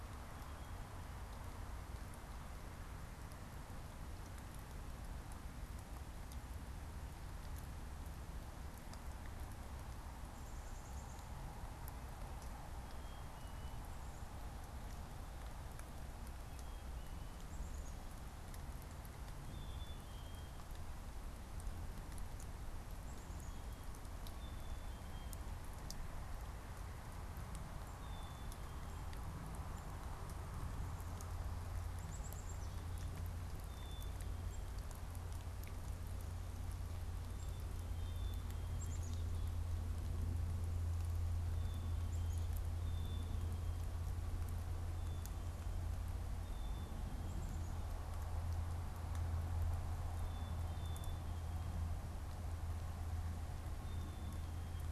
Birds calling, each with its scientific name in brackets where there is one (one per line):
Black-capped Chickadee (Poecile atricapillus)